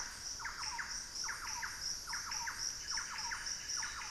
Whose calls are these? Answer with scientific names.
Campylorhynchus turdinus, Cacicus solitarius